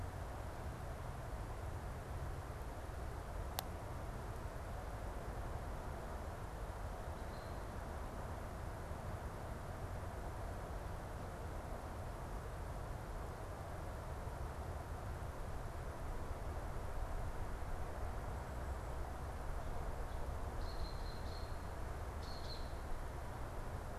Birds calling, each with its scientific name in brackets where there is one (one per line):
Eastern Phoebe (Sayornis phoebe)